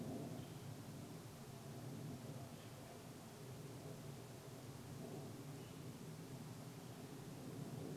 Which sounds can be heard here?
airplane, unidentified sound